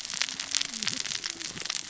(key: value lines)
label: biophony, cascading saw
recorder: SoundTrap 600 or HydroMoth